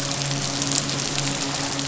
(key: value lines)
label: biophony, midshipman
recorder: SoundTrap 500